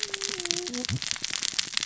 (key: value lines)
label: biophony, cascading saw
recorder: SoundTrap 600 or HydroMoth